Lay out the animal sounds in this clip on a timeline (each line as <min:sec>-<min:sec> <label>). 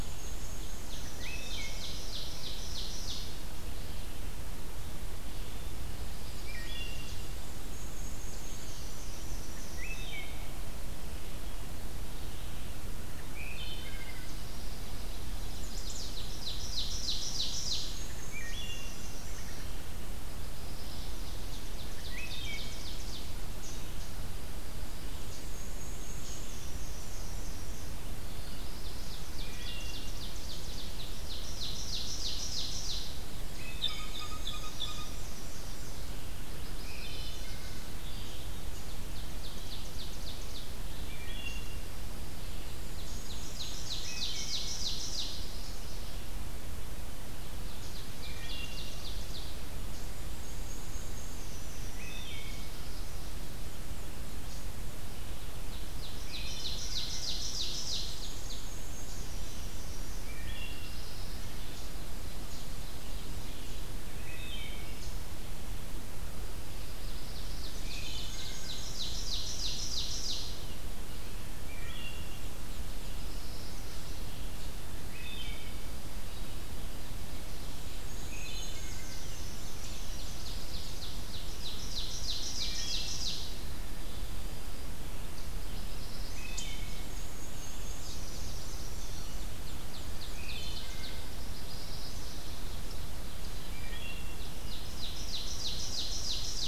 0:00.0-0:02.1 Black-and-white Warbler (Mniotilta varia)
0:00.0-0:19.9 Red-eyed Vireo (Vireo olivaceus)
0:00.1-0:03.5 Ovenbird (Seiurus aurocapilla)
0:01.1-0:02.0 Wood Thrush (Hylocichla mustelina)
0:05.8-0:07.5 Ovenbird (Seiurus aurocapilla)
0:05.9-0:10.1 Black-and-white Warbler (Mniotilta varia)
0:06.3-0:07.1 Wood Thrush (Hylocichla mustelina)
0:09.7-0:10.5 Wood Thrush (Hylocichla mustelina)
0:13.2-0:14.2 Wood Thrush (Hylocichla mustelina)
0:15.1-0:16.4 Chestnut-sided Warbler (Setophaga pensylvanica)
0:15.8-0:19.8 Black-and-white Warbler (Mniotilta varia)
0:15.9-0:17.9 Ovenbird (Seiurus aurocapilla)
0:18.2-0:19.2 Wood Thrush (Hylocichla mustelina)
0:20.2-0:21.4 Chestnut-sided Warbler (Setophaga pensylvanica)
0:21.2-0:23.4 Ovenbird (Seiurus aurocapilla)
0:21.9-0:23.0 Wood Thrush (Hylocichla mustelina)
0:25.1-0:28.0 Black-and-white Warbler (Mniotilta varia)
0:28.1-0:29.3 Chestnut-sided Warbler (Setophaga pensylvanica)
0:28.6-0:33.3 Ovenbird (Seiurus aurocapilla)
0:29.2-0:30.5 Wood Thrush (Hylocichla mustelina)
0:33.2-1:25.9 Red-eyed Vireo (Vireo olivaceus)
0:33.4-0:36.0 Black-and-white Warbler (Mniotilta varia)
0:33.7-0:35.2 Blue Jay (Cyanocitta cristata)
0:36.3-0:37.9 Chestnut-sided Warbler (Setophaga pensylvanica)
0:36.7-0:37.8 Wood Thrush (Hylocichla mustelina)
0:38.6-0:40.9 Ovenbird (Seiurus aurocapilla)
0:40.9-0:41.9 Wood Thrush (Hylocichla mustelina)
0:42.6-0:44.4 Black-and-white Warbler (Mniotilta varia)
0:42.7-0:45.4 Ovenbird (Seiurus aurocapilla)
0:44.0-0:44.7 Wood Thrush (Hylocichla mustelina)
0:45.2-0:46.2 Chestnut-sided Warbler (Setophaga pensylvanica)
0:47.5-0:49.7 Ovenbird (Seiurus aurocapilla)
0:48.1-0:49.0 Wood Thrush (Hylocichla mustelina)
0:50.0-0:52.3 Black-and-white Warbler (Mniotilta varia)
0:51.7-0:52.8 Wood Thrush (Hylocichla mustelina)
0:52.2-0:53.4 Chestnut-sided Warbler (Setophaga pensylvanica)
0:53.1-0:55.1 Black-and-white Warbler (Mniotilta varia)
0:56.0-0:58.7 Ovenbird (Seiurus aurocapilla)
0:56.2-0:56.8 Wood Thrush (Hylocichla mustelina)
0:57.6-1:00.3 Black-and-white Warbler (Mniotilta varia)
1:00.1-1:01.1 Wood Thrush (Hylocichla mustelina)
1:00.7-1:02.0 Chestnut-sided Warbler (Setophaga pensylvanica)
1:02.0-1:03.9 Ovenbird (Seiurus aurocapilla)
1:02.4-1:03.8 Black-and-white Warbler (Mniotilta varia)
1:04.1-1:05.0 Wood Thrush (Hylocichla mustelina)
1:06.6-1:10.6 Ovenbird (Seiurus aurocapilla)
1:07.5-1:09.4 Black-and-white Warbler (Mniotilta varia)
1:07.8-1:08.7 Wood Thrush (Hylocichla mustelina)
1:11.6-1:13.3 Black-and-white Warbler (Mniotilta varia)
1:11.6-1:12.7 Wood Thrush (Hylocichla mustelina)
1:13.1-1:14.1 Chestnut-sided Warbler (Setophaga pensylvanica)
1:14.9-1:15.9 Wood Thrush (Hylocichla mustelina)
1:17.7-1:20.6 Black-and-white Warbler (Mniotilta varia)
1:18.2-1:19.1 Wood Thrush (Hylocichla mustelina)
1:18.6-1:20.0 Chestnut-sided Warbler (Setophaga pensylvanica)
1:19.7-1:23.6 Ovenbird (Seiurus aurocapilla)
1:22.6-1:23.1 Wood Thrush (Hylocichla mustelina)
1:25.6-1:26.6 Chestnut-sided Warbler (Setophaga pensylvanica)
1:26.2-1:27.1 Wood Thrush (Hylocichla mustelina)
1:26.9-1:31.1 Black-and-white Warbler (Mniotilta varia)
1:27.4-1:32.9 Red-eyed Vireo (Vireo olivaceus)
1:27.8-1:28.9 Chestnut-sided Warbler (Setophaga pensylvanica)
1:28.5-1:31.2 Ovenbird (Seiurus aurocapilla)
1:30.1-1:31.3 Wood Thrush (Hylocichla mustelina)
1:31.4-1:32.4 Chestnut-sided Warbler (Setophaga pensylvanica)
1:33.6-1:34.4 Wood Thrush (Hylocichla mustelina)
1:34.3-1:36.7 Ovenbird (Seiurus aurocapilla)